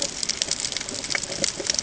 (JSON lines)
{"label": "ambient", "recorder": "HydroMoth"}